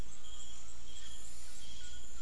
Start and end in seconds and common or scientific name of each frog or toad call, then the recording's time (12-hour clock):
none
6:00pm